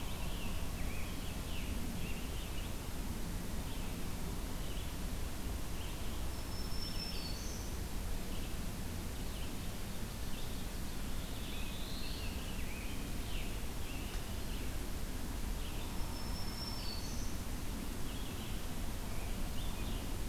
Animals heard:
Red-eyed Vireo (Vireo olivaceus)
Black-throated Blue Warbler (Setophaga caerulescens)
Scarlet Tanager (Piranga olivacea)
Black-throated Green Warbler (Setophaga virens)

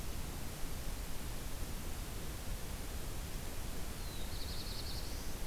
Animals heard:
Black-throated Blue Warbler (Setophaga caerulescens)

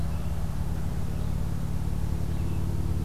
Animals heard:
Red-eyed Vireo (Vireo olivaceus)

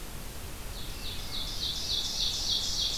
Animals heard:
Hermit Thrush (Catharus guttatus)
Ovenbird (Seiurus aurocapilla)

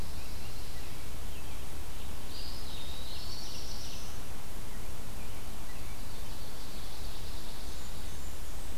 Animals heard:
Eastern Wood-Pewee (Contopus virens)
Blackburnian Warbler (Setophaga fusca)
Pine Warbler (Setophaga pinus)
American Robin (Turdus migratorius)
Ovenbird (Seiurus aurocapilla)
Black-throated Blue Warbler (Setophaga caerulescens)

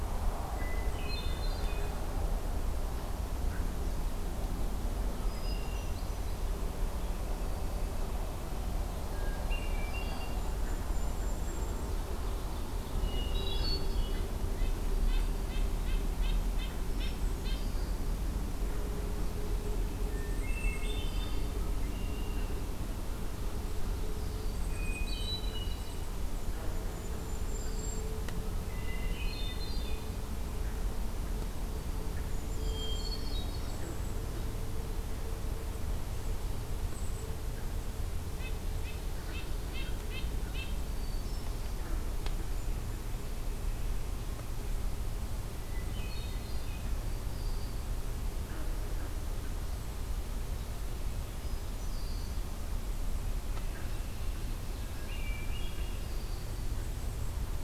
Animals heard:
Hermit Thrush (Catharus guttatus)
Red-winged Blackbird (Agelaius phoeniceus)
Ovenbird (Seiurus aurocapilla)
Golden-crowned Kinglet (Regulus satrapa)
Red-breasted Nuthatch (Sitta canadensis)

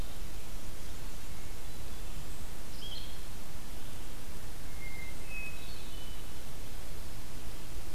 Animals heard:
Blue-headed Vireo (Vireo solitarius)
Hermit Thrush (Catharus guttatus)

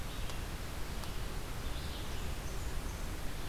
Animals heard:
Blackburnian Warbler (Setophaga fusca)
Red-eyed Vireo (Vireo olivaceus)

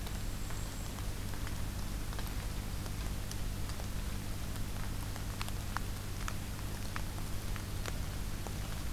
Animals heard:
Golden-crowned Kinglet (Regulus satrapa)

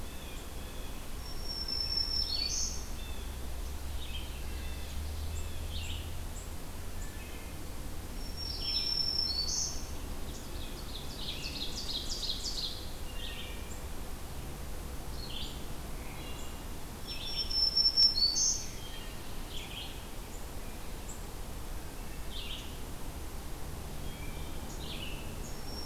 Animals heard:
Black-throated Green Warbler (Setophaga virens)
Blue Jay (Cyanocitta cristata)
Wood Thrush (Hylocichla mustelina)
Red-eyed Vireo (Vireo olivaceus)
Ovenbird (Seiurus aurocapilla)

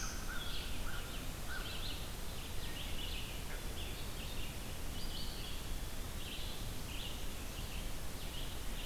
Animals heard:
Eastern Wood-Pewee (Contopus virens)
Red-eyed Vireo (Vireo olivaceus)
American Crow (Corvus brachyrhynchos)
Black-throated Blue Warbler (Setophaga caerulescens)

